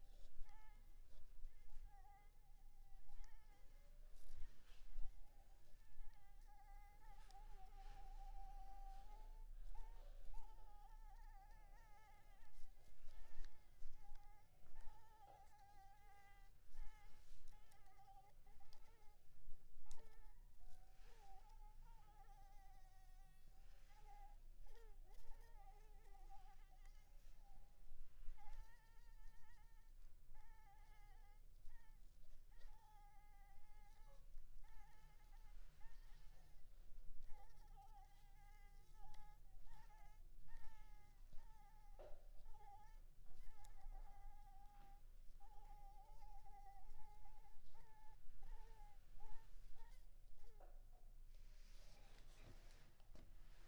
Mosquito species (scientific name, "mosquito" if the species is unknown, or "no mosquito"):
Anopheles maculipalpis